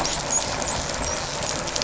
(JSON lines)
{"label": "biophony, dolphin", "recorder": "SoundTrap 500"}